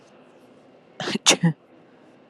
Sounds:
Sneeze